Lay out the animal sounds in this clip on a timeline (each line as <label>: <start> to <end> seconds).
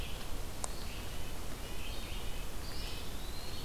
Red-breasted Nuthatch (Sitta canadensis): 0.0 to 2.8 seconds
Red-eyed Vireo (Vireo olivaceus): 0.0 to 3.6 seconds
Eastern Wood-Pewee (Contopus virens): 2.5 to 3.6 seconds